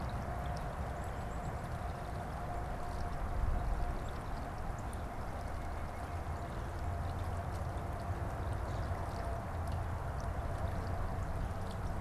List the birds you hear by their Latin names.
unidentified bird